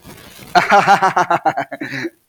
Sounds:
Laughter